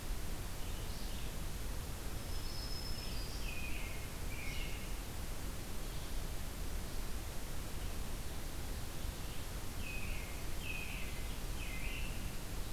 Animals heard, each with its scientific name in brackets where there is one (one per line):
American Robin (Turdus migratorius)
Blue-headed Vireo (Vireo solitarius)
Black-throated Green Warbler (Setophaga virens)